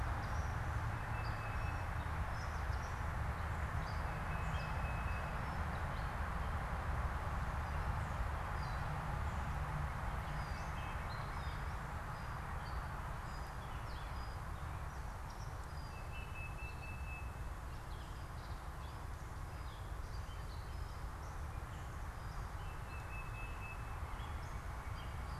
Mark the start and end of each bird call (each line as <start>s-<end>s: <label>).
0.0s-2.2s: Tufted Titmouse (Baeolophus bicolor)
0.0s-25.4s: unidentified bird
4.1s-5.6s: Tufted Titmouse (Baeolophus bicolor)
10.1s-11.3s: Tufted Titmouse (Baeolophus bicolor)
15.8s-17.5s: Tufted Titmouse (Baeolophus bicolor)
22.5s-25.4s: Tufted Titmouse (Baeolophus bicolor)